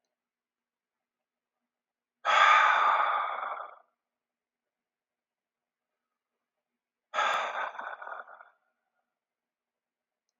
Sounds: Sigh